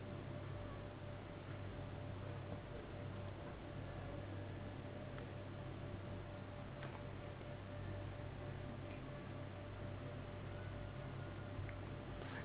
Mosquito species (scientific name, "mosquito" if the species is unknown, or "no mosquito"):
Anopheles gambiae s.s.